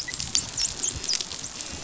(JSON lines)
{"label": "biophony, dolphin", "recorder": "SoundTrap 500"}